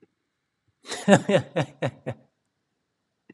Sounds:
Laughter